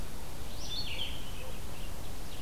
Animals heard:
Red-eyed Vireo (Vireo olivaceus)
Ovenbird (Seiurus aurocapilla)

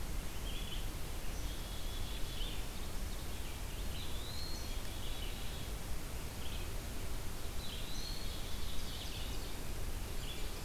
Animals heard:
Eastern Wood-Pewee (Contopus virens)
Ovenbird (Seiurus aurocapilla)
Black-capped Chickadee (Poecile atricapillus)
Red-eyed Vireo (Vireo olivaceus)

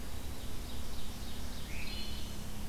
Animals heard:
Wood Thrush (Hylocichla mustelina)
Red-eyed Vireo (Vireo olivaceus)
Ovenbird (Seiurus aurocapilla)

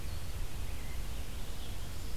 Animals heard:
Red-eyed Vireo (Vireo olivaceus)
Rose-breasted Grosbeak (Pheucticus ludovicianus)

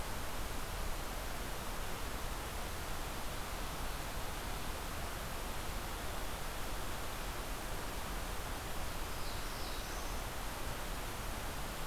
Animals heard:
Black-throated Blue Warbler (Setophaga caerulescens)

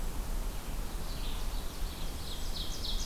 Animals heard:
Red-eyed Vireo (Vireo olivaceus)
Hermit Thrush (Catharus guttatus)
Ovenbird (Seiurus aurocapilla)

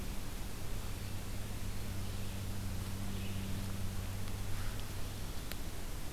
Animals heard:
Red-eyed Vireo (Vireo olivaceus)

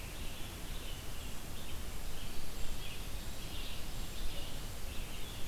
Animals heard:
Brown Creeper (Certhia americana)
Red-eyed Vireo (Vireo olivaceus)

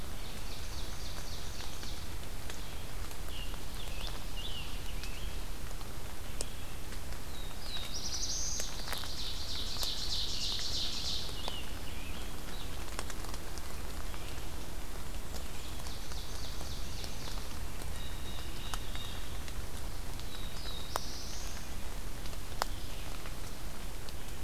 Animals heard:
Black-throated Blue Warbler (Setophaga caerulescens)
Ovenbird (Seiurus aurocapilla)
Blue Jay (Cyanocitta cristata)
Red-eyed Vireo (Vireo olivaceus)
Scarlet Tanager (Piranga olivacea)

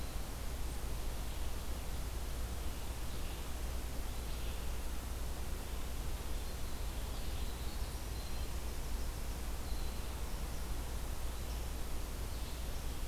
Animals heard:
Red-eyed Vireo (Vireo olivaceus)
Winter Wren (Troglodytes hiemalis)

